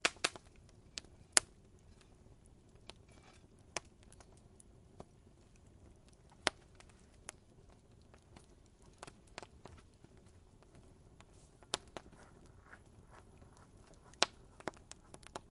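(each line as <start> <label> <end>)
0.0 A fire crackles repeatedly nearby. 1.4
0.0 A fire burns continuously nearby. 15.5
2.9 A fire crackles repeatedly nearby. 3.8
4.9 A fire crackling nearby. 5.1
6.4 A fire crackling nearby. 6.5
7.2 A fire crackling nearby. 7.4
8.8 A fire crackles repeatedly nearby. 9.8
11.7 A fire crackles repeatedly nearby. 12.5
14.2 A fire crackles repeatedly nearby. 15.5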